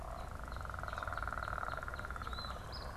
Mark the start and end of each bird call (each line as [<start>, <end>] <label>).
[0.02, 2.72] Northern Cardinal (Cardinalis cardinalis)
[2.22, 2.92] Eastern Phoebe (Sayornis phoebe)